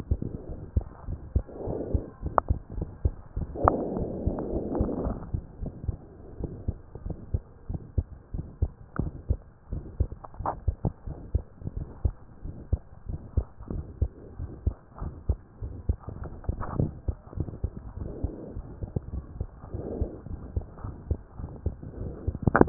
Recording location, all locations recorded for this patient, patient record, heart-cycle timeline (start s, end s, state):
tricuspid valve (TV)
aortic valve (AV)+pulmonary valve (PV)+tricuspid valve (TV)+mitral valve (MV)
#Age: Child
#Sex: Female
#Height: 101.0 cm
#Weight: 18.7 kg
#Pregnancy status: False
#Murmur: Present
#Murmur locations: aortic valve (AV)+mitral valve (MV)+pulmonary valve (PV)+tricuspid valve (TV)
#Most audible location: pulmonary valve (PV)
#Systolic murmur timing: Early-systolic
#Systolic murmur shape: Plateau
#Systolic murmur grading: II/VI
#Systolic murmur pitch: Low
#Systolic murmur quality: Blowing
#Diastolic murmur timing: nan
#Diastolic murmur shape: nan
#Diastolic murmur grading: nan
#Diastolic murmur pitch: nan
#Diastolic murmur quality: nan
#Outcome: Abnormal
#Campaign: 2015 screening campaign
0.00	12.16	unannotated
12.16	12.41	diastole
12.41	12.54	S1
12.54	12.68	systole
12.68	12.82	S2
12.82	13.08	diastole
13.08	13.20	S1
13.20	13.34	systole
13.34	13.48	S2
13.48	13.70	diastole
13.70	13.86	S1
13.86	13.98	systole
13.98	14.12	S2
14.12	14.40	diastole
14.40	14.52	S1
14.52	14.64	systole
14.64	14.76	S2
14.76	15.02	diastole
15.02	15.14	S1
15.14	15.26	systole
15.26	15.40	S2
15.40	15.62	diastole
15.62	15.74	S1
15.74	15.86	systole
15.86	16.00	S2
16.00	16.20	diastole
16.20	16.30	S1
16.30	16.44	systole
16.44	16.56	S2
16.56	16.76	diastole
16.76	16.94	S1
16.94	17.06	systole
17.06	17.16	S2
17.16	17.38	diastole
17.38	17.48	S1
17.48	17.60	systole
17.60	17.74	S2
17.74	17.98	diastole
17.98	18.12	S1
18.12	18.22	systole
18.22	18.32	S2
18.32	18.56	diastole
18.56	18.66	S1
18.66	18.82	systole
18.82	18.92	S2
18.92	19.12	diastole
19.12	19.24	S1
19.24	19.36	systole
19.36	19.48	S2
19.48	19.72	diastole
19.72	19.86	S1
19.86	20.00	systole
20.00	20.12	S2
20.12	20.30	diastole
20.30	20.42	S1
20.42	20.54	systole
20.54	20.68	S2
20.68	20.83	diastole
20.83	20.96	S1
20.96	21.08	systole
21.08	21.22	S2
21.22	21.40	diastole
21.40	21.52	S1
21.52	21.64	systole
21.64	21.78	S2
21.78	22.00	diastole
22.00	22.69	unannotated